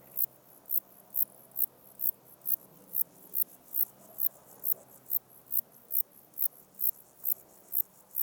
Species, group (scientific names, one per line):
Zeuneriana abbreviata
Orthoptera